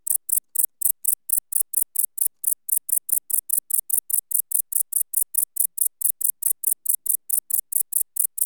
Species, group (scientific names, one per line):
Tettigonia hispanica
Orthoptera